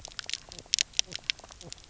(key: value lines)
label: biophony, knock croak
recorder: SoundTrap 300